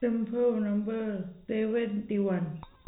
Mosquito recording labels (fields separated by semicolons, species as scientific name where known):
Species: no mosquito; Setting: cup